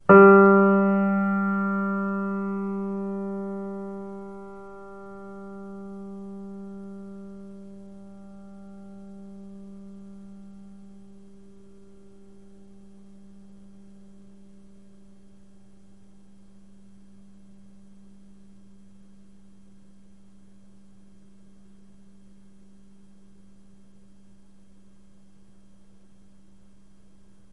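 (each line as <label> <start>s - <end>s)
A single key on a grand piano is pressed, producing a decaying tone. 0.1s - 27.5s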